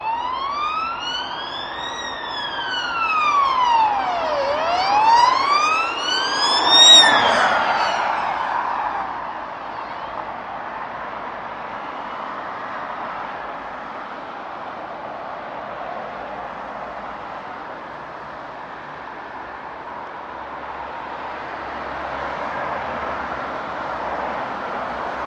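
An ambulance siren warning on the road. 0:00.0 - 0:10.3
Traffic noise of cars passing on a main road. 0:10.4 - 0:25.3

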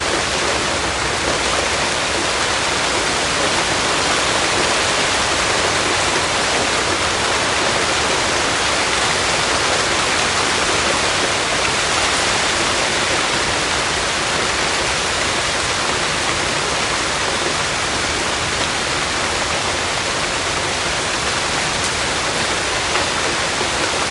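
Heavy rain falling nearby. 0:00.0 - 0:24.1

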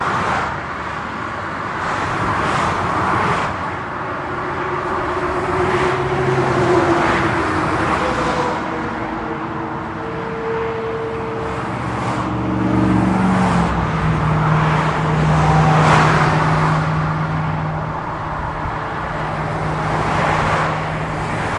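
Vehicles passing by on a freeway. 0:00.0 - 0:21.6

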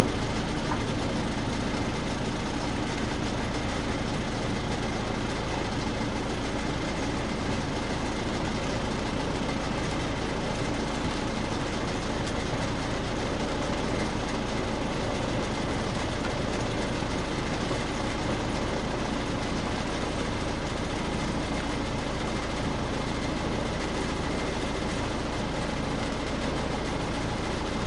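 The steady, low-volume sound of a motorboat engine running. 0:00.0 - 0:27.9

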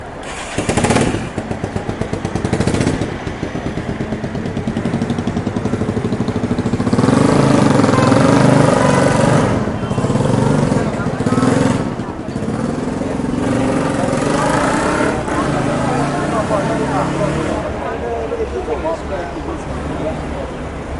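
A motorcycle engine starts and revs up. 0:00.0 - 0:03.6
A motorcycle engine revs in traffic with background noise. 0:03.6 - 0:21.0

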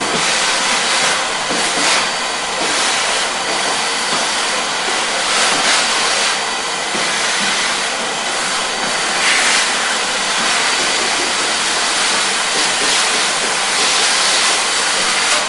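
A vacuum cleaner operates continuously. 0:00.0 - 0:15.5

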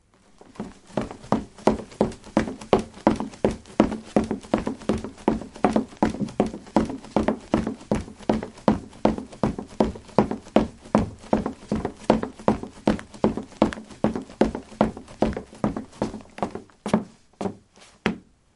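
A man is running repeatedly on a flat surface. 0:00.0 - 0:18.6

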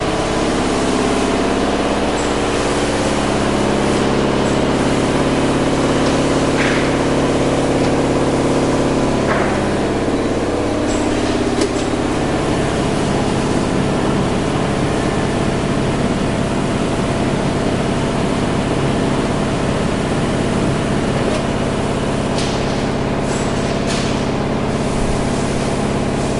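Sewing machines run continuously. 0:00.0 - 0:26.4
Someone is banging on an object. 0:02.0 - 0:02.5
Someone is banging on an object. 0:04.3 - 0:04.8
Someone is banging on an object. 0:06.4 - 0:06.9
Someone is banging on an object. 0:09.0 - 0:09.7
Someone is banging on an object. 0:10.8 - 0:11.9
Someone is banging on an object. 0:22.2 - 0:24.5

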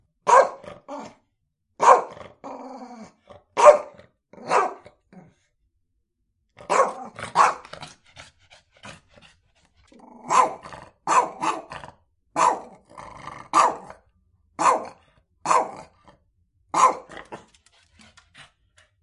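Small dog barks and growls several times irregularly nearby. 0:00.2 - 0:17.6
A small dog growls shortly once nearby indoors. 0:02.4 - 0:03.4
A small dog breathes loudly and snorts several times nearby. 0:07.9 - 0:09.9

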